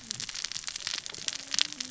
{"label": "biophony, cascading saw", "recorder": "SoundTrap 600 or HydroMoth"}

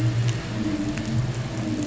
{"label": "anthrophony, boat engine", "recorder": "SoundTrap 500"}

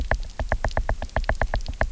{"label": "biophony, knock", "recorder": "SoundTrap 300"}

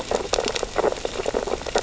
{"label": "biophony, sea urchins (Echinidae)", "recorder": "SoundTrap 600 or HydroMoth"}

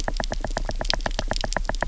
{"label": "biophony, knock", "recorder": "SoundTrap 300"}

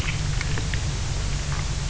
{"label": "anthrophony, boat engine", "recorder": "SoundTrap 300"}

